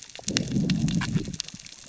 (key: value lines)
label: biophony, growl
recorder: SoundTrap 600 or HydroMoth